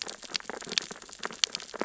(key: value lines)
label: biophony, sea urchins (Echinidae)
recorder: SoundTrap 600 or HydroMoth